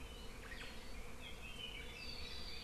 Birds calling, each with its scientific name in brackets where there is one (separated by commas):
Omao (Myadestes obscurus), Apapane (Himatione sanguinea)